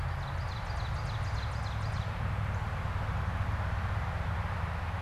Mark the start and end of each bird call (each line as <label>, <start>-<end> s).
Ovenbird (Seiurus aurocapilla), 0.0-2.2 s
Northern Cardinal (Cardinalis cardinalis), 2.4-2.8 s